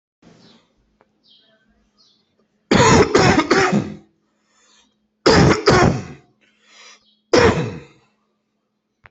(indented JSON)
{
  "expert_labels": [
    {
      "quality": "ok",
      "cough_type": "wet",
      "dyspnea": false,
      "wheezing": false,
      "stridor": false,
      "choking": false,
      "congestion": false,
      "nothing": true,
      "diagnosis": "lower respiratory tract infection",
      "severity": "mild"
    }
  ],
  "age": 38,
  "gender": "male",
  "respiratory_condition": false,
  "fever_muscle_pain": false,
  "status": "symptomatic"
}